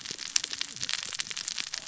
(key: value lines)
label: biophony, cascading saw
recorder: SoundTrap 600 or HydroMoth